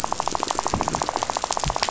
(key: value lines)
label: biophony, rattle
recorder: SoundTrap 500